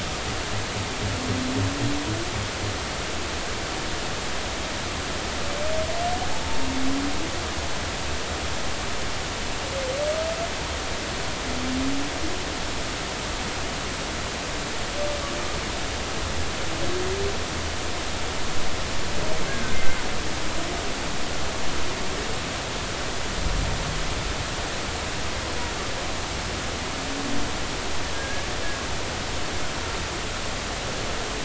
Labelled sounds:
19.5	20.0	humpback whale, 1.5 to 2.2 kHz
28.1	28.5	humpback whale, 1.6 to 1.8 kHz

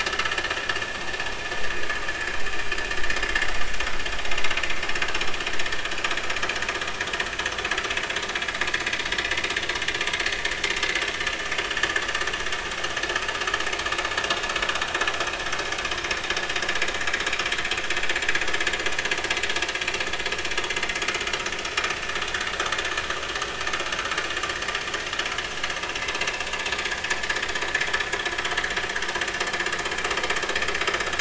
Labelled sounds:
7.3	7.6	vessel noise, 6.0 to 6.3 kHz
21.6	21.9	vessel noise, 5.2 to 5.5 kHz

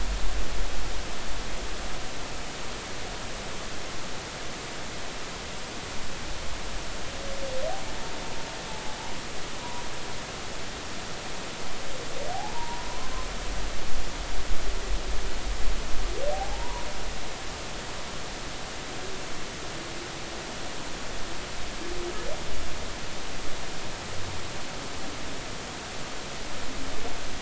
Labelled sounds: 12.3	13.1	humpback whale, 0.80 to 1.1 kHz
16.3	16.9	humpback whale, 0.80 to 1.2 kHz

